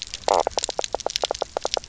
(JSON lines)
{"label": "biophony, knock croak", "recorder": "SoundTrap 300"}